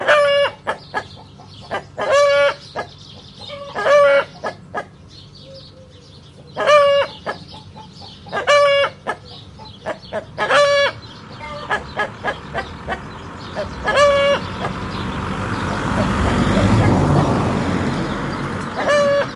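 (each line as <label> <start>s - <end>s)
Chickens and hens clucking repeatedly with pauses in between. 0.0s - 14.7s
A bird chirps in the distance. 3.3s - 8.5s
A car or truck passes by loudly. 14.8s - 18.6s
A chicken clucks loudly. 18.7s - 19.3s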